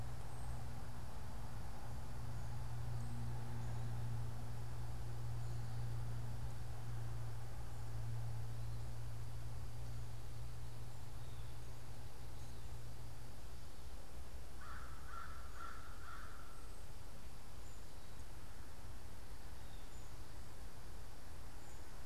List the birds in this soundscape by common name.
American Crow